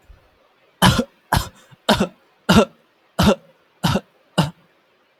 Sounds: Cough